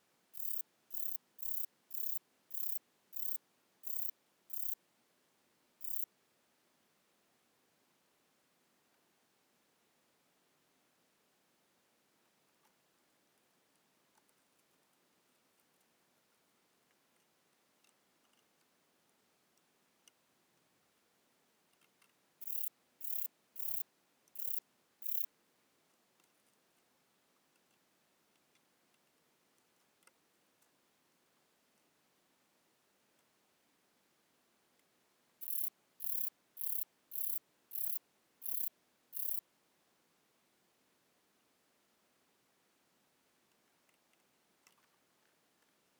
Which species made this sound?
Rhacocleis buchichii